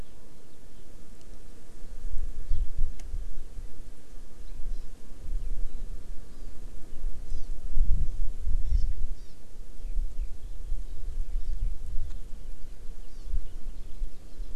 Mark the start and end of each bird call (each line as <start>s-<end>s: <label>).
4.7s-4.9s: Hawaii Amakihi (Chlorodrepanis virens)
6.3s-6.5s: Hawaii Amakihi (Chlorodrepanis virens)
7.2s-7.5s: Hawaii Amakihi (Chlorodrepanis virens)
8.7s-8.8s: Hawaii Amakihi (Chlorodrepanis virens)
9.1s-9.3s: Hawaii Amakihi (Chlorodrepanis virens)
9.8s-10.3s: Eurasian Skylark (Alauda arvensis)
13.0s-13.3s: Hawaii Amakihi (Chlorodrepanis virens)